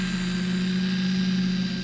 {"label": "anthrophony, boat engine", "recorder": "SoundTrap 500"}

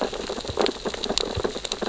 {"label": "biophony, sea urchins (Echinidae)", "recorder": "SoundTrap 600 or HydroMoth"}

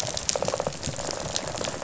{"label": "biophony, rattle response", "recorder": "SoundTrap 500"}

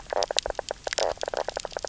{"label": "biophony, knock croak", "recorder": "SoundTrap 300"}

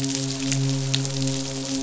{"label": "biophony, midshipman", "recorder": "SoundTrap 500"}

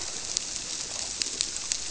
{"label": "biophony", "recorder": "SoundTrap 300"}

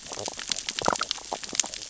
{"label": "biophony, sea urchins (Echinidae)", "recorder": "SoundTrap 600 or HydroMoth"}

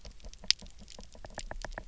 {"label": "biophony, knock", "recorder": "SoundTrap 300"}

